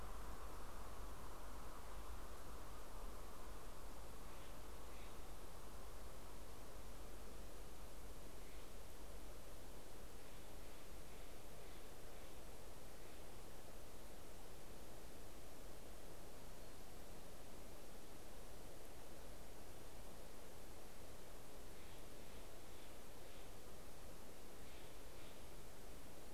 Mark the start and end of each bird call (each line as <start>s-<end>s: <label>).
3.7s-13.9s: Steller's Jay (Cyanocitta stelleri)
20.9s-26.3s: Steller's Jay (Cyanocitta stelleri)